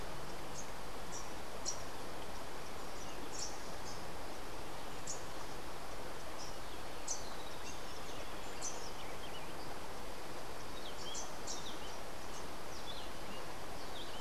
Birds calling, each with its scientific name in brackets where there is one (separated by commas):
Rufous-capped Warbler (Basileuterus rufifrons)